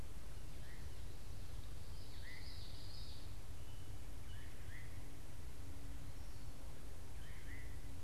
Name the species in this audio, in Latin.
Catharus fuscescens, Geothlypis trichas